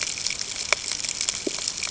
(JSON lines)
{"label": "ambient", "recorder": "HydroMoth"}